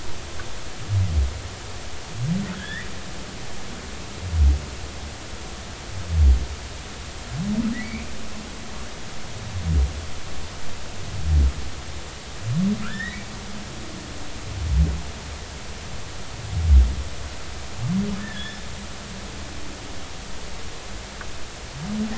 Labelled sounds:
2.5	2.9	humpback whale, 1.3 to 3.6 kHz
7.7	8.1	humpback whale, 1.8 to 2.5 kHz
12.8	13.2	humpback whale, 1.2 to 4.0 kHz
18.2	18.6	humpback whale, 1.6 to 3.6 kHz

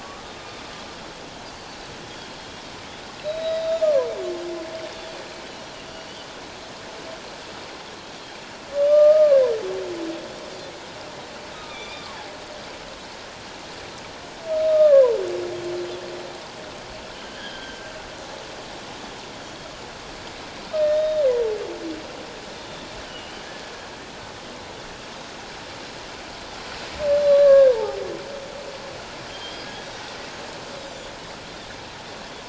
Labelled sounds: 0.0	0.4	humpback whale, 1.1 to 1.3 kHz
3.2	4.1	humpback whale, 0.94 to 4.0 kHz
5.8	6.2	Pacific white-sided dolphin, 4.5 to 5.8 kHz
8.8	9.4	humpback whale, 1.1 to 1.3 kHz
11.5	12.1	humpback whale, 1.2 to 4.9 kHz
14.7	15.2	humpback whale, 0.91 to 1.3 kHz
17.2	17.8	humpback whale, 1.5 to 3.4 kHz
20.7	21.2	humpback whale, 1.2 to 3.8 kHz
23.0	23.5	humpback whale, 2.8 to 3.2 kHz
27.2	28.0	humpback whale, 0.78 to 4.1 kHz
29.3	29.6	humpback whale, 3.1 to 3.3 kHz
30.8	31.1	Pacific white-sided dolphin, 5.8 to 7.4 kHz

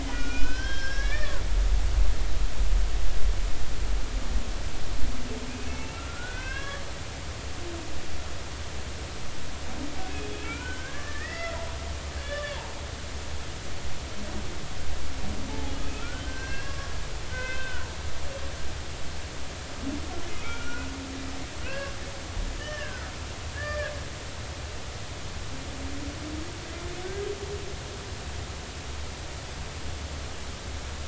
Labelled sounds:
0.0	1.9	humpback whale, 1.4 to 5.7 kHz
5.5	6.8	humpback whale, 0.99 to 3.4 kHz
10.4	12.8	humpback whale, 0.83 to 5.4 kHz
15.5	16.9	humpback whale, 0.80 to 5.9 kHz
17.3	17.9	humpback whale, 1.3 to 2.7 kHz
20.3	20.9	humpback whale, 1.2 to 2.4 kHz
21.6	21.9	humpback whale, 1.4 to 2.8 kHz
22.6	23.1	humpback whale, 1.4 to 1.9 kHz
23.5	23.9	humpback whale, 1.5 to 2.4 kHz

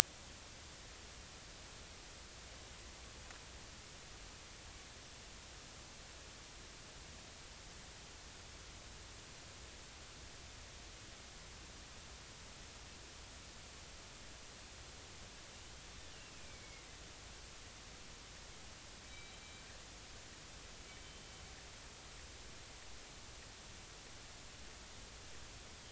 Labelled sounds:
16.3	16.9	killer whale, northern resident, 2.1 to 2.6 kHz
19.0	19.6	killer whale, northern resident, G clan, 2.2 to 3.9 kHz
20.9	21.2	killer whale, northern resident, G clan, 3.0 to 3.2 kHz

